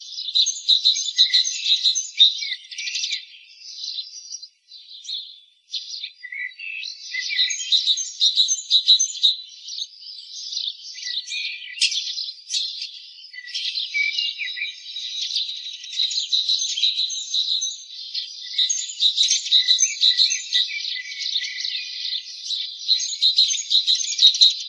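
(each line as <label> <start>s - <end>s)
Birds chirp loudly and repeatedly outdoors. 0.0s - 24.7s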